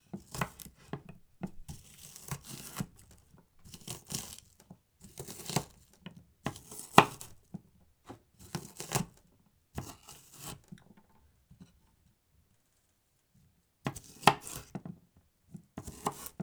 Is the person alone?
yes